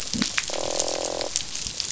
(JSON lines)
{"label": "biophony, croak", "recorder": "SoundTrap 500"}